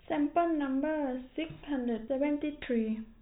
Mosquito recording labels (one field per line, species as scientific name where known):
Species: no mosquito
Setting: cup